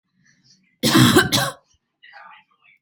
{"expert_labels": [{"quality": "good", "cough_type": "unknown", "dyspnea": false, "wheezing": false, "stridor": false, "choking": false, "congestion": false, "nothing": true, "diagnosis": "healthy cough", "severity": "pseudocough/healthy cough"}], "age": 30, "gender": "female", "respiratory_condition": false, "fever_muscle_pain": false, "status": "healthy"}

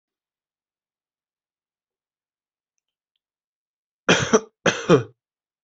{"expert_labels": [{"quality": "good", "cough_type": "dry", "dyspnea": false, "wheezing": false, "stridor": false, "choking": false, "congestion": false, "nothing": true, "diagnosis": "healthy cough", "severity": "pseudocough/healthy cough"}], "age": 18, "gender": "male", "respiratory_condition": false, "fever_muscle_pain": false, "status": "symptomatic"}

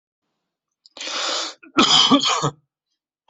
{"expert_labels": [{"quality": "good", "cough_type": "dry", "dyspnea": false, "wheezing": false, "stridor": false, "choking": false, "congestion": false, "nothing": true, "diagnosis": "healthy cough", "severity": "mild"}]}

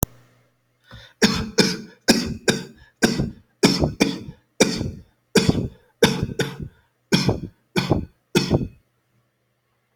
{"expert_labels": [{"quality": "good", "cough_type": "dry", "dyspnea": false, "wheezing": false, "stridor": false, "choking": false, "congestion": false, "nothing": true, "diagnosis": "COVID-19", "severity": "mild"}], "age": 40, "gender": "male", "respiratory_condition": false, "fever_muscle_pain": true, "status": "symptomatic"}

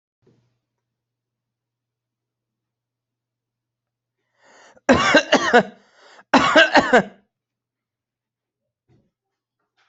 {"expert_labels": [{"quality": "ok", "cough_type": "unknown", "dyspnea": false, "wheezing": false, "stridor": false, "choking": false, "congestion": false, "nothing": true, "diagnosis": "healthy cough", "severity": "pseudocough/healthy cough"}], "age": 39, "gender": "male", "respiratory_condition": false, "fever_muscle_pain": false, "status": "healthy"}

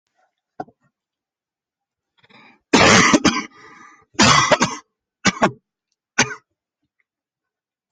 {"expert_labels": [{"quality": "poor", "cough_type": "wet", "dyspnea": true, "wheezing": false, "stridor": false, "choking": false, "congestion": false, "nothing": false, "diagnosis": "lower respiratory tract infection", "severity": "mild"}], "age": 20, "gender": "male", "respiratory_condition": false, "fever_muscle_pain": false, "status": "symptomatic"}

